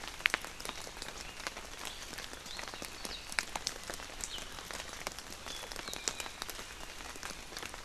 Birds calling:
Apapane (Himatione sanguinea)

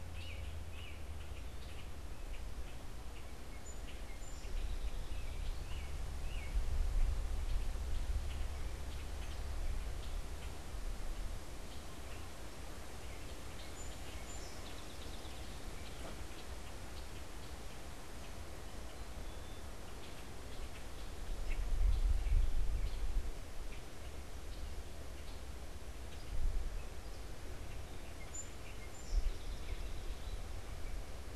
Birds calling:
American Robin (Turdus migratorius), Song Sparrow (Melospiza melodia), Common Grackle (Quiscalus quiscula)

